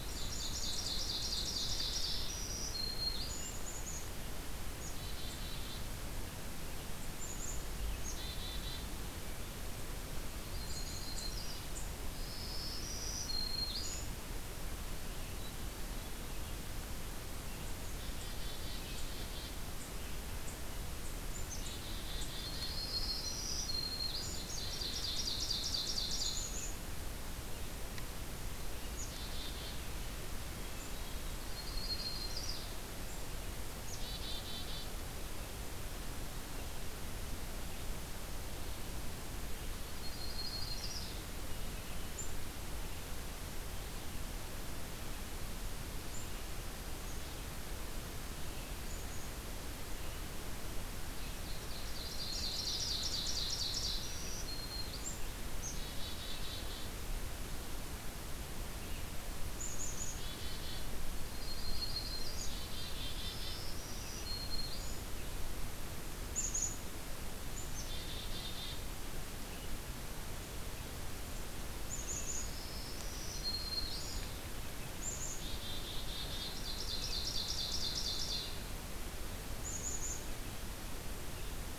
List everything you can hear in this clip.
Ovenbird, Black-capped Chickadee, Black-throated Green Warbler, Yellow-rumped Warbler, Hermit Thrush